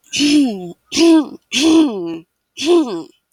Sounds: Throat clearing